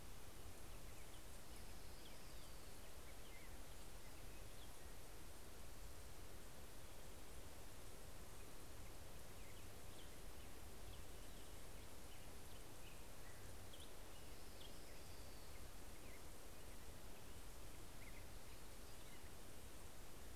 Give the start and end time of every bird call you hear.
0.0s-6.3s: Black-headed Grosbeak (Pheucticus melanocephalus)
0.9s-3.3s: Orange-crowned Warbler (Leiothlypis celata)
8.1s-20.3s: Black-headed Grosbeak (Pheucticus melanocephalus)
13.7s-16.4s: Orange-crowned Warbler (Leiothlypis celata)

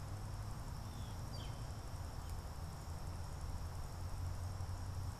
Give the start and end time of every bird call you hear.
0.8s-1.2s: Blue Jay (Cyanocitta cristata)
1.2s-1.6s: Northern Flicker (Colaptes auratus)

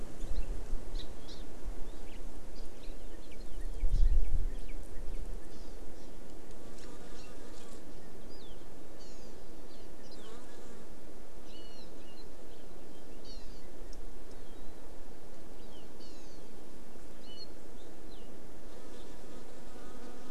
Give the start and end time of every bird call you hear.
1.2s-1.4s: Hawaii Amakihi (Chlorodrepanis virens)
3.2s-5.2s: Northern Cardinal (Cardinalis cardinalis)
5.4s-5.7s: Hawaii Amakihi (Chlorodrepanis virens)
7.1s-7.3s: Hawaii Amakihi (Chlorodrepanis virens)
8.9s-9.3s: Hawaii Amakihi (Chlorodrepanis virens)
9.6s-9.8s: Hawaii Amakihi (Chlorodrepanis virens)
11.4s-11.8s: Hawaii Amakihi (Chlorodrepanis virens)
13.2s-13.6s: Hawaii Amakihi (Chlorodrepanis virens)
15.5s-16.4s: Hawaii Amakihi (Chlorodrepanis virens)
17.2s-17.4s: Hawaii Amakihi (Chlorodrepanis virens)

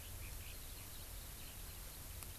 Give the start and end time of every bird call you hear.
0.0s-2.4s: Eurasian Skylark (Alauda arvensis)

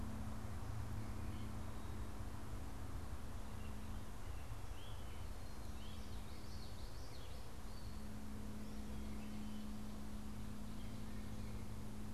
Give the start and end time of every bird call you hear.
0.0s-12.1s: Gray Catbird (Dumetella carolinensis)
5.8s-7.4s: Common Yellowthroat (Geothlypis trichas)

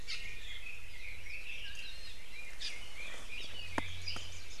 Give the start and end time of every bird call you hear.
0.0s-0.3s: Iiwi (Drepanis coccinea)
0.0s-1.9s: Red-billed Leiothrix (Leiothrix lutea)
1.6s-2.2s: Iiwi (Drepanis coccinea)
2.3s-4.4s: Red-billed Leiothrix (Leiothrix lutea)
2.5s-2.8s: Iiwi (Drepanis coccinea)
3.3s-3.5s: Apapane (Himatione sanguinea)
3.7s-4.6s: Warbling White-eye (Zosterops japonicus)

